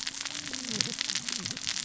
{"label": "biophony, cascading saw", "recorder": "SoundTrap 600 or HydroMoth"}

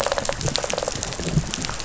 {"label": "biophony, rattle response", "recorder": "SoundTrap 500"}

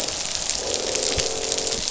{"label": "biophony, croak", "recorder": "SoundTrap 500"}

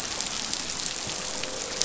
{"label": "biophony, croak", "recorder": "SoundTrap 500"}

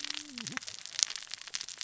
{"label": "biophony, cascading saw", "recorder": "SoundTrap 600 or HydroMoth"}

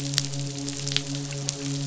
{"label": "biophony, midshipman", "recorder": "SoundTrap 500"}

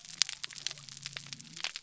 {"label": "biophony", "recorder": "SoundTrap 300"}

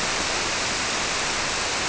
{"label": "biophony", "recorder": "SoundTrap 300"}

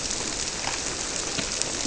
{"label": "biophony", "recorder": "SoundTrap 300"}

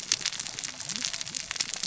{"label": "biophony, cascading saw", "recorder": "SoundTrap 600 or HydroMoth"}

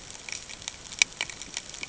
{"label": "ambient", "recorder": "HydroMoth"}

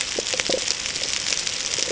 {"label": "ambient", "recorder": "HydroMoth"}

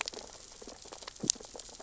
{"label": "biophony, sea urchins (Echinidae)", "recorder": "SoundTrap 600 or HydroMoth"}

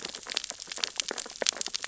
{"label": "biophony, sea urchins (Echinidae)", "recorder": "SoundTrap 600 or HydroMoth"}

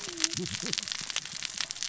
{"label": "biophony, cascading saw", "recorder": "SoundTrap 600 or HydroMoth"}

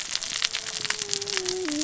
{"label": "biophony, cascading saw", "recorder": "SoundTrap 600 or HydroMoth"}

